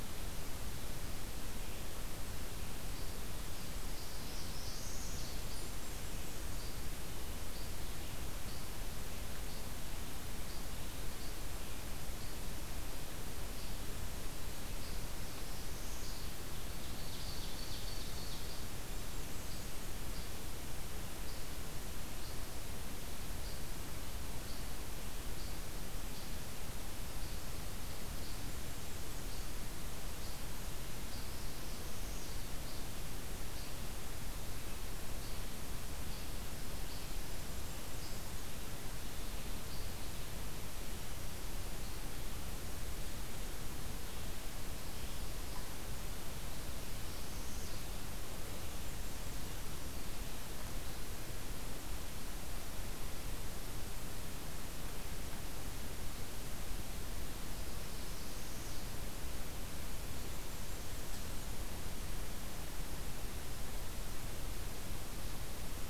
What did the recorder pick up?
Least Flycatcher, Northern Parula, Blackburnian Warbler, Ovenbird, Golden-crowned Kinglet